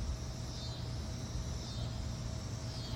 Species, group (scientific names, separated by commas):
Neotibicen pruinosus, Cicadidae